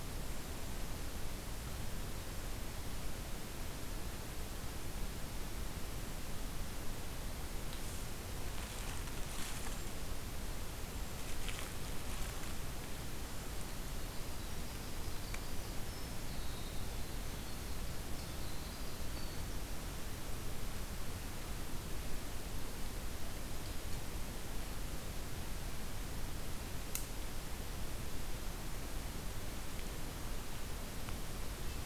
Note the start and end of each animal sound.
[13.82, 20.12] Winter Wren (Troglodytes hiemalis)

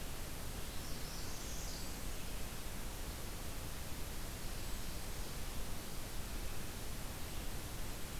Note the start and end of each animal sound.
[0.73, 1.99] Northern Parula (Setophaga americana)
[4.33, 5.65] Blackburnian Warbler (Setophaga fusca)

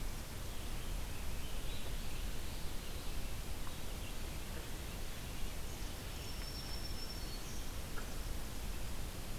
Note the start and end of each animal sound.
[0.33, 4.31] Rose-breasted Grosbeak (Pheucticus ludovicianus)
[5.95, 7.69] Black-throated Green Warbler (Setophaga virens)

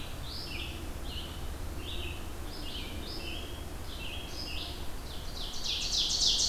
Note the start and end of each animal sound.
[0.00, 6.48] Red-eyed Vireo (Vireo olivaceus)
[1.26, 2.08] Eastern Wood-Pewee (Contopus virens)
[4.95, 6.48] Ovenbird (Seiurus aurocapilla)

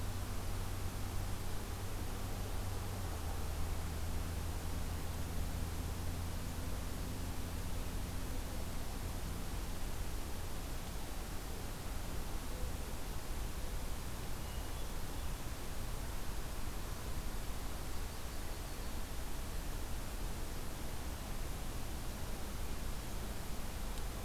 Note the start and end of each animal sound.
[14.35, 15.53] Hermit Thrush (Catharus guttatus)
[17.81, 18.95] Yellow-rumped Warbler (Setophaga coronata)

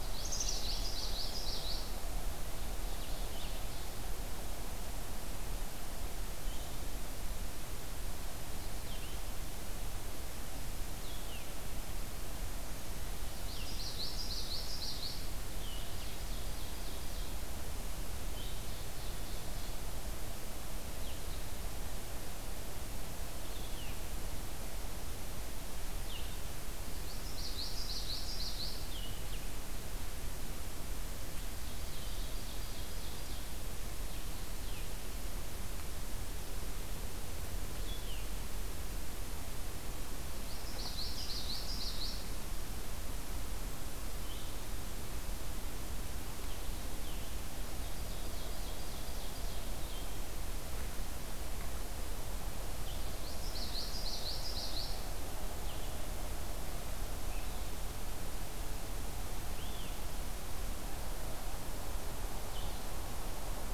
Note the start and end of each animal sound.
[0.00, 2.05] Common Yellowthroat (Geothlypis trichas)
[0.00, 6.86] Blue-headed Vireo (Vireo solitarius)
[0.13, 0.74] Black-capped Chickadee (Poecile atricapillus)
[8.69, 62.97] Blue-headed Vireo (Vireo solitarius)
[13.37, 15.35] Common Yellowthroat (Geothlypis trichas)
[15.75, 17.40] Ovenbird (Seiurus aurocapilla)
[18.35, 19.87] Ovenbird (Seiurus aurocapilla)
[27.00, 28.81] Common Yellowthroat (Geothlypis trichas)
[31.62, 33.53] Ovenbird (Seiurus aurocapilla)
[40.44, 42.28] Common Yellowthroat (Geothlypis trichas)
[47.82, 50.15] Ovenbird (Seiurus aurocapilla)
[53.17, 55.10] Common Yellowthroat (Geothlypis trichas)

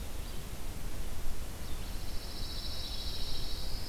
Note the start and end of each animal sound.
[0.00, 3.89] Red-eyed Vireo (Vireo olivaceus)
[1.69, 3.81] Pine Warbler (Setophaga pinus)
[2.79, 3.89] Black-throated Blue Warbler (Setophaga caerulescens)

